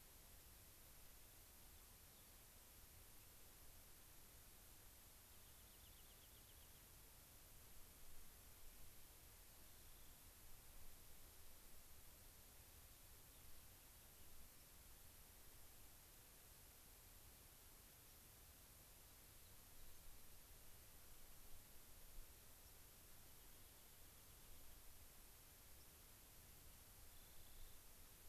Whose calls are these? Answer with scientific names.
Salpinctes obsoletus, Zonotrichia leucophrys